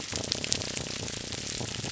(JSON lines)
{"label": "biophony, grouper groan", "recorder": "SoundTrap 300"}